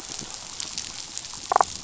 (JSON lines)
{"label": "biophony, damselfish", "recorder": "SoundTrap 500"}